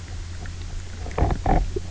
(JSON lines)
{"label": "biophony, knock croak", "recorder": "SoundTrap 300"}